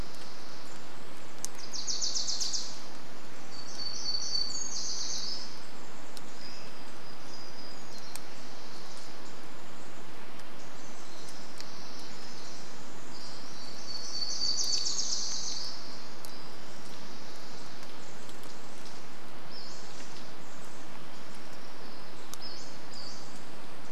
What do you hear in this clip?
Wilson's Warbler song, warbler song, unidentified sound, Pacific Wren song, Pacific-slope Flycatcher call